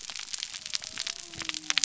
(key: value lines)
label: biophony
recorder: SoundTrap 300